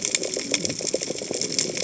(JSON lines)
{"label": "biophony, cascading saw", "recorder": "HydroMoth"}